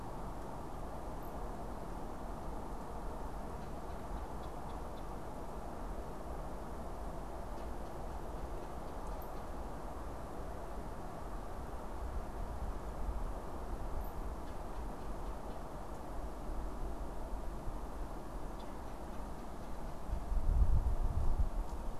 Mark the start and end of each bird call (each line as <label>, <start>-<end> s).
Red-bellied Woodpecker (Melanerpes carolinus), 3.3-5.4 s
Red-bellied Woodpecker (Melanerpes carolinus), 7.3-9.2 s
Red-bellied Woodpecker (Melanerpes carolinus), 14.3-15.9 s
Red-bellied Woodpecker (Melanerpes carolinus), 18.4-20.5 s